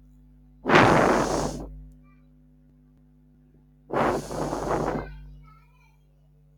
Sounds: Sigh